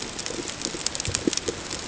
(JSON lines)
{"label": "ambient", "recorder": "HydroMoth"}